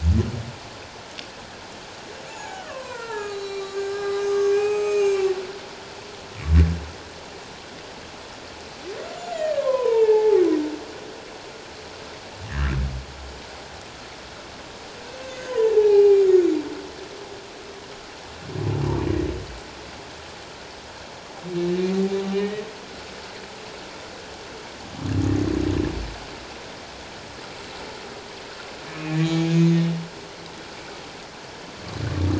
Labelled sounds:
2.3	5.3	humpback whale, 0.78 to 6.9 kHz
9.1	10.4	humpback whale, 0.78 to 7.2 kHz
15.5	16.2	humpback whale, 0.78 to 2.5 kHz
22.3	22.6	humpback whale, 1.8 to 3.1 kHz
29.2	29.9	humpback whale, 2.2 to 6.6 kHz

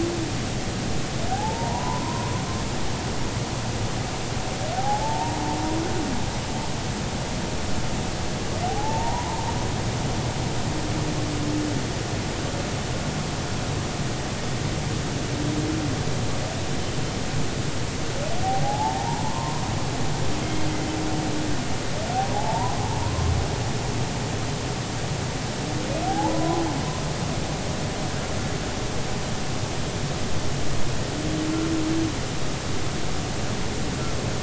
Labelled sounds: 1.3	2.4	humpback whale, 0.80 to 1.1 kHz
4.8	5.4	humpback whale, 0.80 to 0.99 kHz
8.7	9.5	humpback whale, 0.80 to 1.1 kHz
18.4	19.6	humpback whale, 0.80 to 1.1 kHz
20.4	20.7	humpback whale, 2.1 to 2.2 kHz
22.3	23.3	humpback whale, 0.80 to 1.2 kHz
26.1	26.6	humpback whale, 0.80 to 1.1 kHz

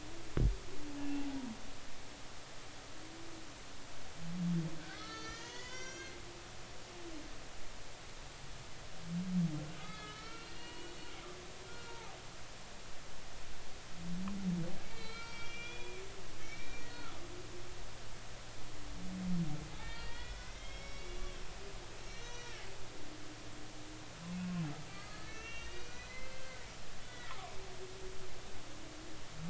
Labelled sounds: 1.0	1.3	humpback whale, 2.6 to 2.8 kHz
4.8	6.2	humpback whale, 0.96 to 7.0 kHz
9.8	11.1	humpback whale, 0.93 to 4.5 kHz
11.7	12.2	humpback whale, 0.80 to 1.5 kHz
14.8	17.8	humpback whale, 1.2 to 5.8 kHz
19.8	21.3	humpback whale, 1.4 to 5.7 kHz
22.0	22.6	humpback whale, 1.6 to 6.3 kHz
24.3	26.6	humpback whale, 1.2 to 6.1 kHz
27.0	27.5	humpback whale, 0.96 to 2.0 kHz

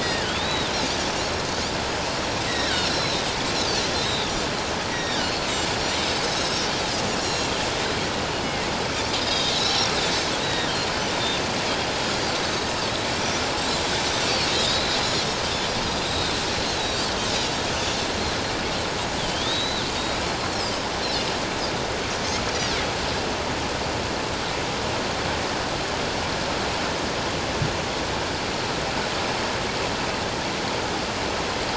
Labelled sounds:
0.0	0.7	Pacific white-sided dolphin, 1.6 to 4.0 kHz
1.2	1.4	Pacific white-sided dolphin, 5.4 to 5.7 kHz
2.5	3.2	Pacific white-sided dolphin, 1.4 to 8.0 kHz
3.9	5.5	Pacific white-sided dolphin, 1.4 to 5.8 kHz
5.9	6.6	Pacific white-sided dolphin, 3.6 to 7.9 kHz
7.2	7.5	Pacific white-sided dolphin, 2.7 to 7.4 kHz
8.4	8.7	Pacific white-sided dolphin, 1.8 to 2.2 kHz
9.2	9.9	Pacific white-sided dolphin, 3.5 to 5.8 kHz
10.4	10.7	Pacific white-sided dolphin, 1.8 to 3.9 kHz
12.4	12.8	Pacific white-sided dolphin, 3.8 to 6.5 kHz
14.5	15.3	Pacific white-sided dolphin, 3.5 to 7.1 kHz
15.8	17.0	Pacific white-sided dolphin, 3.5 to 5.0 kHz
19.2	20.2	Pacific white-sided dolphin, 3.0 to 4.1 kHz

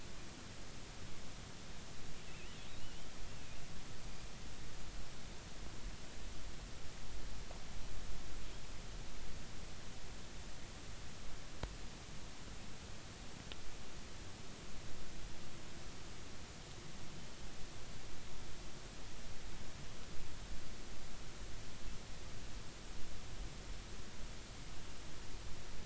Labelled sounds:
2.8	3.1	killer whale, offshore, 2.7 to 3.3 kHz

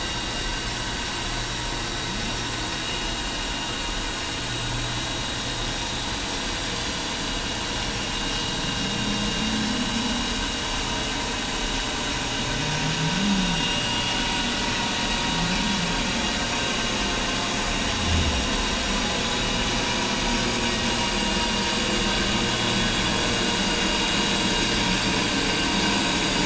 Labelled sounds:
8.9	9.2	vessel noise, 3.7 to 3.8 kHz
13.1	13.5	humpback whale, 0.19 to 0.26 kHz
13.5	13.9	vessel noise, 2.8 to 2.9 kHz

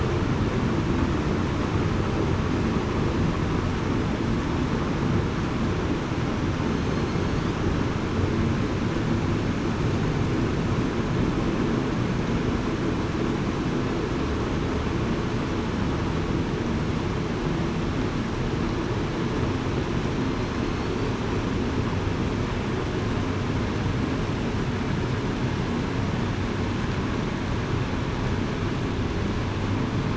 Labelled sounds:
6.7	7.0	killer whale, southern resident, 6.2 to 6.4 kHz

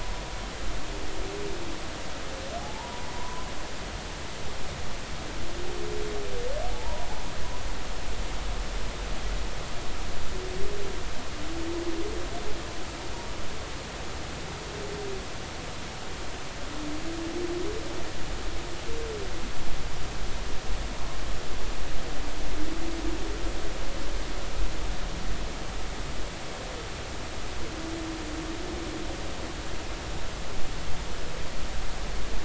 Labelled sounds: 2.6	3.5	humpback whale, 0.80 to 1.1 kHz
6.7	7.1	humpback whale, 0.83 to 1.1 kHz

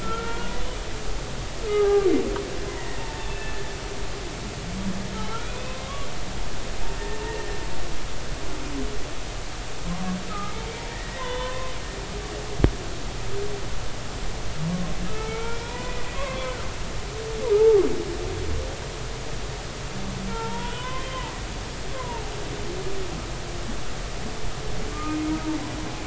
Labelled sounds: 0.0	0.5	humpback whale, 1.3 to 1.5 kHz
1.7	2.1	humpback whale, 0.80 to 1.7 kHz
2.8	3.7	humpback whale, 0.86 to 2.7 kHz
5.2	5.8	humpback whale, 0.83 to 2.6 kHz
7.2	7.6	humpback whale, 1.8 to 1.9 kHz
10.3	11.7	humpback whale, 0.90 to 3.6 kHz
14.7	16.9	humpback whale, 0.90 to 2.5 kHz
17.5	17.8	humpback whale, 0.80 to 0.93 kHz
20.3	22.2	humpback whale, 0.83 to 3.5 kHz
24.9	25.2	humpback whale, 1.1 to 1.3 kHz

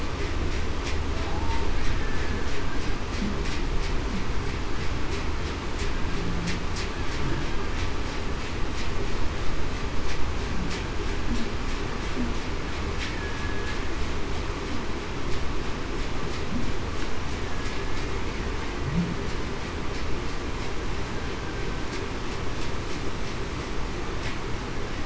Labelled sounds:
1.3	1.7	humpback whale, 0.80 to 0.94 kHz
13.2	13.7	killer whale, Bigg's (transient), 1.6 to 1.7 kHz

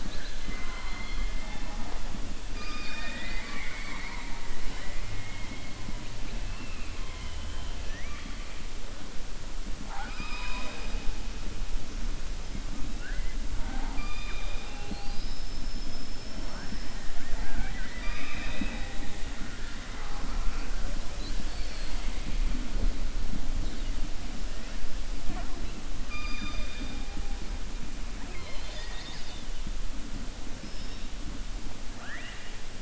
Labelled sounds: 0.4	1.3	killer whale, southern resident, 0.96 to 4.3 kHz
2.5	4.4	killer whale, southern resident, 0.60 to 5.6 kHz
7.1	8.3	killer whale, southern resident, 1.2 to 3.3 kHz
26.0	27.0	killer whale, southern resident, 0.31 to 4.9 kHz
31.9	32.5	killer whale, southern resident, 0.69 to 3.2 kHz

